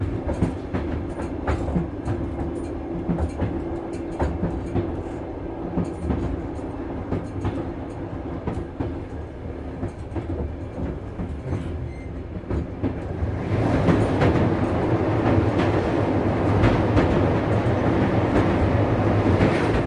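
0.0s A train approaches from a distance, growing louder until it passes by. 19.9s

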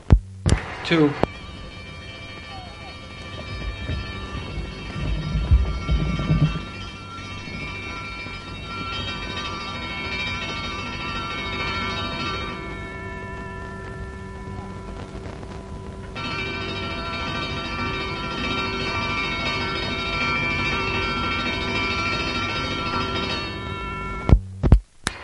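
0.0s Someone speaking through old audio equipment. 1.3s
1.3s An old-fashioned railroad warning bell rings very fast. 24.2s
24.2s Noises from old audio equipment. 25.2s

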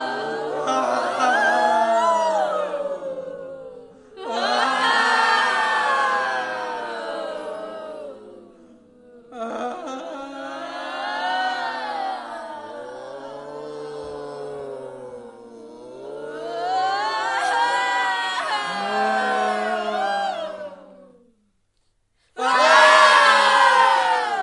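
0.0s A group of people make creepy wailing sounds that slowly fade. 4.2s
4.3s A group of people make creepy screaming sounds that slowly fade. 8.4s
9.2s A group of people make creepy screams with increasing volume. 20.8s
22.2s A group of people scream loudly and in unison indoors. 24.4s

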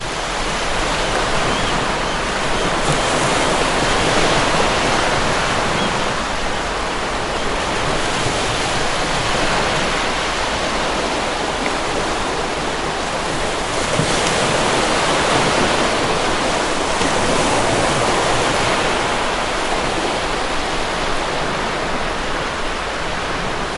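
0.0s Seagulls mewing loudly in the distance, repeating rhythmically. 23.8s
0.0s Waves repeatedly crashing on a shore. 23.8s

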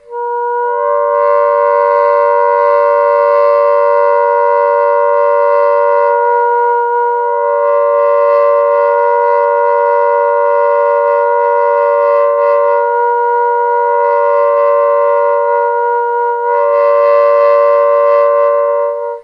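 0.0s An instrument plays a shrill sound with varying volume. 19.2s

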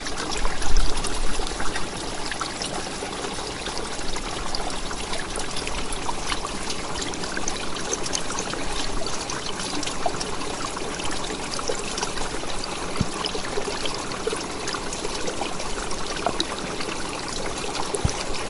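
0.0s Water is softly babbling and gurgling. 18.5s

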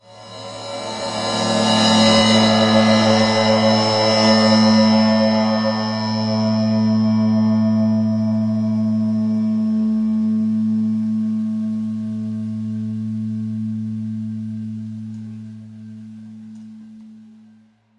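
0.0s A cymbal clangs loudly indoors and then fades away. 18.0s

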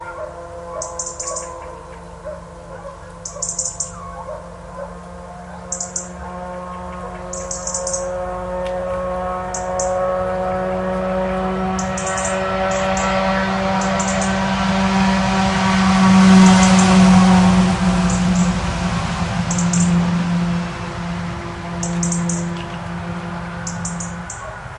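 0.0s A motorcycle passes by. 24.8s
0.0s A dog barks repeatedly. 5.6s
0.7s A bird chirping. 1.6s
3.2s A bird chirping. 4.0s
5.7s A bird chirping. 6.1s
7.3s A bird chirping. 8.1s
9.5s A bird chirping. 10.0s
11.8s A bird chirping. 14.7s
16.5s A bird chirping. 17.1s
18.1s A bird chirping. 18.6s
19.5s A bird chirping. 20.1s
21.7s A bird chirping. 22.6s
23.7s A bird chirping. 24.5s
24.4s A dog barks. 24.8s

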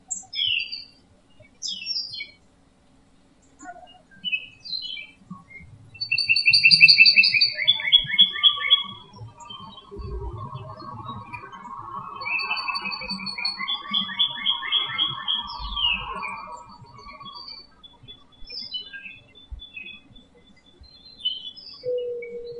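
0.1s A bird chirps. 0.9s
1.6s A bird chirps. 2.4s
3.6s A bird chirps in the distance. 4.0s
4.2s A bird chirps repeatedly. 5.7s
5.9s A bird chirps rhythmically and repeatedly. 9.1s
9.2s A bird chirps faintly in the distance. 12.2s
12.2s A bird chirps rhythmically and repeatedly. 16.5s
16.5s A bird chirps faintly in the distance. 22.6s

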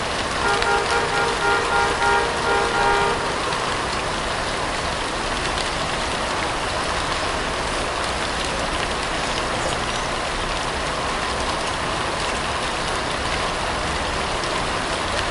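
0.0s Steady rain is falling nearby. 15.3s
0.5s A car horn sounds multiple times. 3.2s
9.8s A bird chirps in the distance. 10.1s
12.7s A car horn sounds faintly in the distance. 13.1s

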